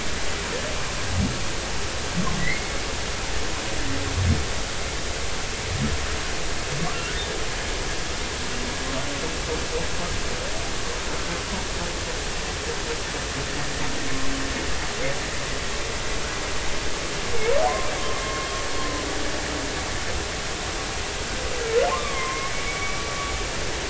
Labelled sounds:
2.4	2.7	humpback whale, 1.9 to 2.3 kHz
6.8	7.2	humpback whale, 1.1 to 1.5 kHz
18.2	18.6	humpback whale, 1.1 to 2.3 kHz
21.9	23.0	humpback whale, 0.99 to 2.5 kHz

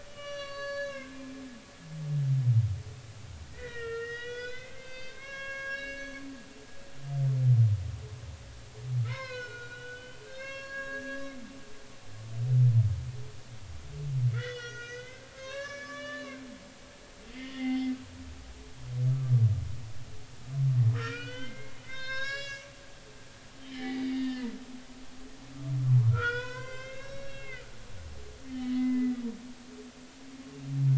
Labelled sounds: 0.0	1.4	humpback whale, 0.99 to 6.4 kHz
3.5	6.2	humpback whale, 1.0 to 6.2 kHz
9.0	11.3	humpback whale, 0.90 to 6.6 kHz
14.3	16.4	humpback whale, 0.99 to 6.5 kHz
17.3	17.9	humpback whale, 0.80 to 4.5 kHz
20.9	22.7	humpback whale, 0.99 to 7.3 kHz
23.6	24.5	humpback whale, 0.80 to 4.7 kHz
26.1	27.7	humpback whale, 0.93 to 6.7 kHz
28.5	29.2	humpback whale, 1.9 to 3.1 kHz

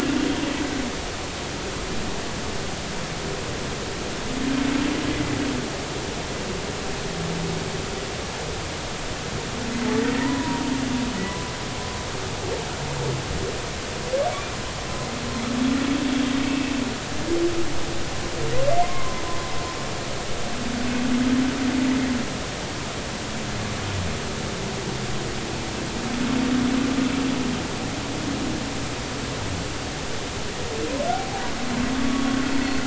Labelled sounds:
10.2	10.6	humpback whale, 0.90 to 1.1 kHz
11.3	11.5	humpback whale, 0.96 to 1.1 kHz
18.8	19.2	humpback whale, 0.96 to 1.2 kHz
31.1	31.4	humpback whale, 0.80 to 0.90 kHz
32.0	32.4	humpback whale, 1.1 to 1.2 kHz

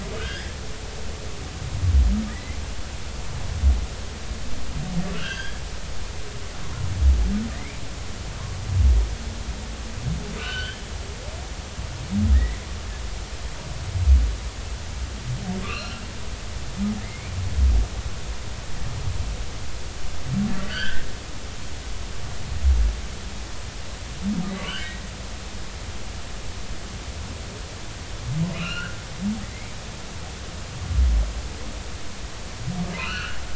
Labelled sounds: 0.2	0.5	humpback whale, 1.2 to 2.0 kHz
2.3	2.6	humpback whale, 1.6 to 2.2 kHz
5.1	5.6	humpback whale, 1.3 to 3.4 kHz
7.5	7.8	humpback whale, 1.8 to 2.4 kHz
10.4	10.8	humpback whale, 1.4 to 3.2 kHz
12.3	12.6	humpback whale, 1.7 to 2.2 kHz
15.6	16.0	humpback whale, 1.1 to 5.8 kHz
17.0	17.3	humpback whale, 1.7 to 2.5 kHz
20.7	21.0	humpback whale, 1.4 to 3.4 kHz
24.6	24.9	humpback whale, 1.3 to 3.2 kHz
28.5	29.7	humpback whale, 1.1 to 4.4 kHz
33.0	33.4	humpback whale, 1.2 to 4.3 kHz

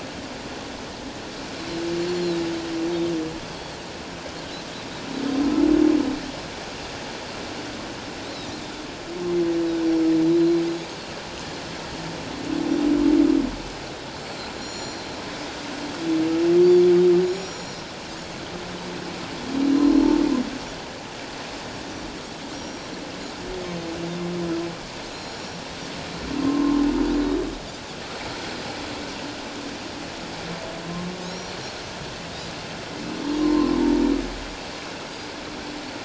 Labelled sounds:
2.1	2.4	Pacific white-sided dolphin, 3.7 to 4.3 kHz
3.5	3.8	Pacific white-sided dolphin, 4.1 to 4.5 kHz
10.2	10.6	Pacific white-sided dolphin, 3.7 to 4.3 kHz
14.3	15.0	Pacific white-sided dolphin, 3.9 to 7.2 kHz
17.3	17.8	Pacific white-sided dolphin, 4.1 to 7.1 kHz
19.6	20.0	humpback whale, 4.0 to 4.2 kHz
19.7	20.2	Pacific white-sided dolphin, 0.97 to 5.7 kHz
22.5	22.9	Pacific white-sided dolphin, 5.5 to 5.7 kHz
25.1	25.7	Pacific white-sided dolphin, 3.9 to 7.1 kHz
26.4	26.8	humpback whale, 1.0 to 1.1 kHz
31.2	31.6	Pacific white-sided dolphin, 3.7 to 5.8 kHz
33.4	33.7	humpback whale, 0.88 to 1.2 kHz

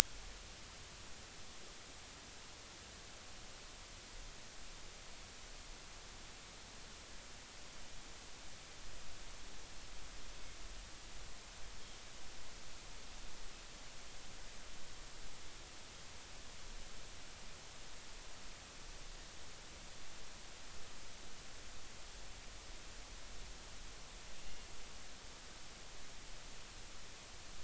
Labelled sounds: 24.4	24.7	Pacific white-sided dolphin, 2.7 to 2.9 kHz

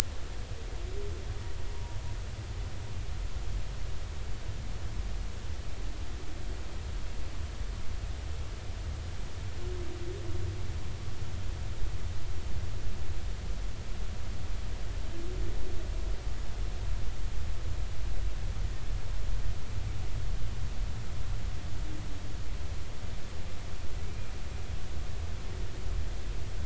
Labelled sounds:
1.7	2.0	humpback whale, 0.86 to 1.1 kHz

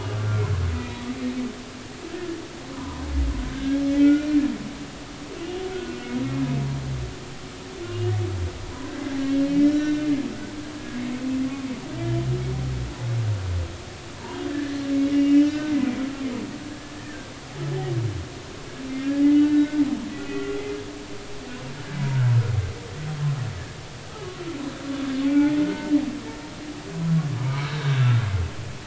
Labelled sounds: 0.0	1.0	humpback whale, 1.1 to 2.5 kHz
2.7	3.0	humpback whale, 0.93 to 1.1 kHz
3.5	4.4	humpback whale, 1.3 to 2.5 kHz
5.7	6.0	humpback whale, 1.4 to 1.6 kHz
7.8	8.1	humpback whale, 2.8 to 2.9 kHz
9.4	10.1	humpback whale, 1.4 to 2.6 kHz
10.8	11.0	humpback whale, 1.6 to 1.7 kHz
14.5	14.8	humpback whale, 1.6 to 1.9 kHz
15.1	15.7	humpback whale, 1.4 to 5.7 kHz
19.2	19.8	humpback whale, 1.4 to 2.1 kHz
20.2	20.6	humpback whale, 1.3 to 2.0 kHz
25.2	25.9	humpback whale, 0.80 to 2.4 kHz
27.6	28.3	humpback whale, 1.3 to 4.0 kHz

